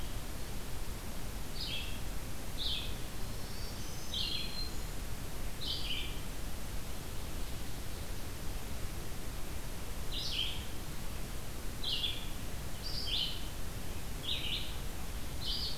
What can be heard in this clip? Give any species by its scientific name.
Vireo olivaceus, Setophaga virens